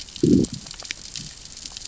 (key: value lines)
label: biophony, growl
recorder: SoundTrap 600 or HydroMoth